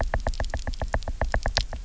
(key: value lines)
label: biophony, knock
recorder: SoundTrap 300